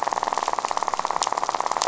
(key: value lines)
label: biophony, rattle
recorder: SoundTrap 500